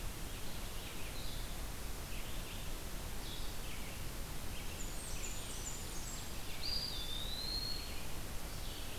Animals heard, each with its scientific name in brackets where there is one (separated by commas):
Eastern Wood-Pewee (Contopus virens), Ovenbird (Seiurus aurocapilla), Red-eyed Vireo (Vireo olivaceus), Blackburnian Warbler (Setophaga fusca), Blue-headed Vireo (Vireo solitarius)